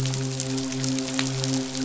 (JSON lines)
{"label": "biophony, midshipman", "recorder": "SoundTrap 500"}